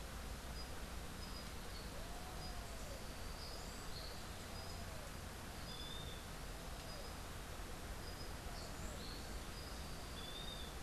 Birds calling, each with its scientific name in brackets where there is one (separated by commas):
Western Wood-Pewee (Contopus sordidulus), Red-billed Pigeon (Patagioenas flavirostris)